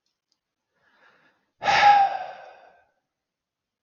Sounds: Sigh